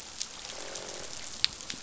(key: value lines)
label: biophony, croak
recorder: SoundTrap 500